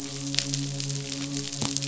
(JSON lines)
{"label": "biophony, midshipman", "recorder": "SoundTrap 500"}